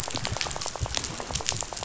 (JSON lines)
{"label": "biophony, rattle", "recorder": "SoundTrap 500"}